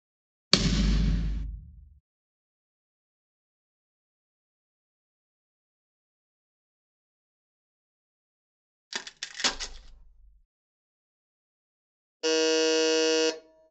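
At 0.51 seconds, thumping is heard. After that, at 8.9 seconds, there is the sound of wood. Later, at 12.2 seconds, an alarm is audible.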